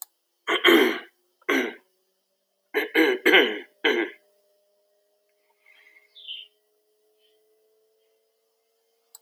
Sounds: Throat clearing